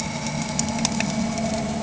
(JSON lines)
{"label": "anthrophony, boat engine", "recorder": "HydroMoth"}